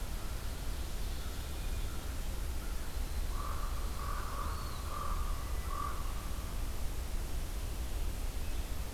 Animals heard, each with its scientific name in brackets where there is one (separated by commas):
Eastern Wood-Pewee (Contopus virens), Hermit Thrush (Catharus guttatus), Common Raven (Corvus corax)